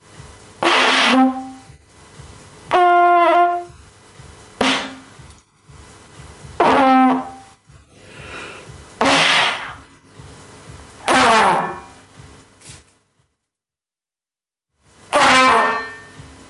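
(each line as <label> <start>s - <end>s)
A trumpet is playing. 0.6s - 1.7s
A trumpet is playing. 2.6s - 3.8s
A trumpet is playing. 4.5s - 5.3s
A trumpet is playing. 6.6s - 7.5s
A trumpet is playing. 8.9s - 10.0s
A trumpet is playing. 11.0s - 12.3s
A trumpet is playing. 15.1s - 16.3s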